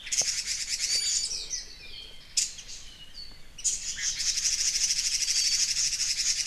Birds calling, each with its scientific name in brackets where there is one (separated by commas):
Apapane (Himatione sanguinea), Iiwi (Drepanis coccinea), Red-billed Leiothrix (Leiothrix lutea)